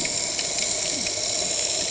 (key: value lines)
label: anthrophony, boat engine
recorder: HydroMoth